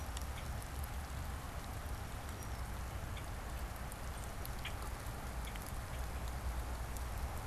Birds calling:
Red-winged Blackbird (Agelaius phoeniceus)

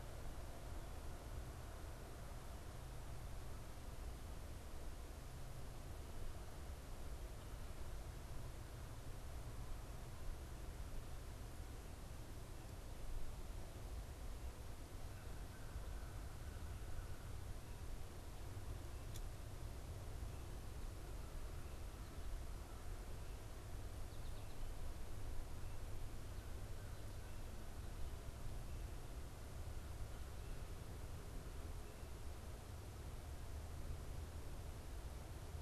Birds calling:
American Goldfinch (Spinus tristis)
American Crow (Corvus brachyrhynchos)

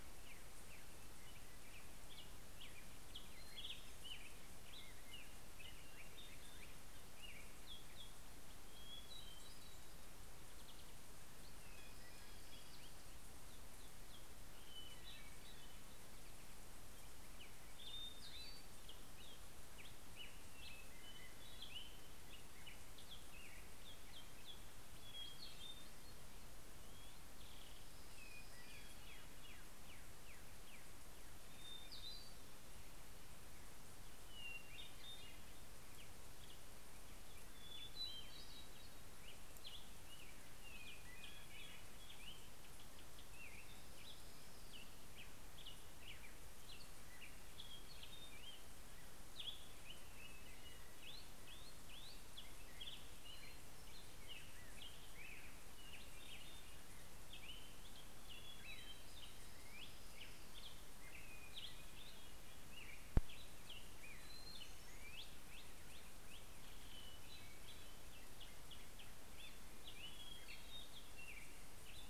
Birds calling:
Orange-crowned Warbler (Leiothlypis celata)
Black-headed Grosbeak (Pheucticus melanocephalus)
Hermit Thrush (Catharus guttatus)

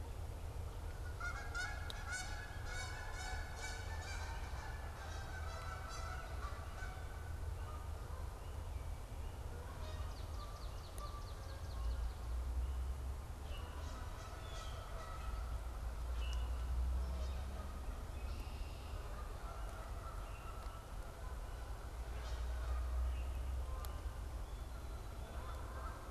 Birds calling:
Swamp Sparrow (Melospiza georgiana)
Common Grackle (Quiscalus quiscula)
Canada Goose (Branta canadensis)
Blue Jay (Cyanocitta cristata)
Red-winged Blackbird (Agelaius phoeniceus)

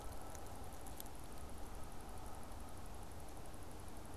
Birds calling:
Canada Goose (Branta canadensis)

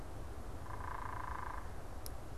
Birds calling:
unidentified bird

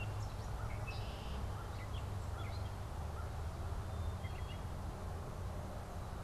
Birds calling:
Gray Catbird (Dumetella carolinensis)
Black-capped Chickadee (Poecile atricapillus)
Red-winged Blackbird (Agelaius phoeniceus)

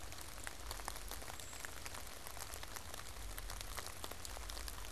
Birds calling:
Brown Creeper (Certhia americana)

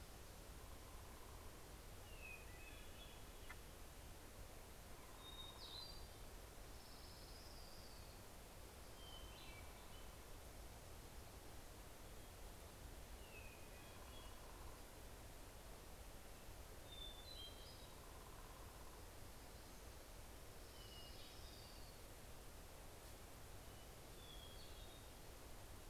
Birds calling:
Orange-crowned Warbler (Leiothlypis celata)
Hermit Thrush (Catharus guttatus)

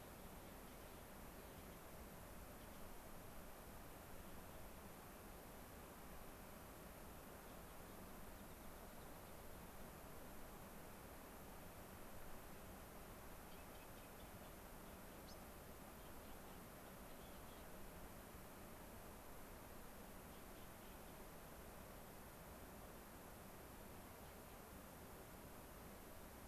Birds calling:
unidentified bird
Rock Wren (Salpinctes obsoletus)

